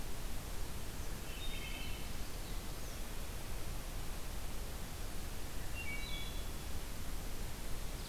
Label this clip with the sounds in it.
Common Yellowthroat, Wood Thrush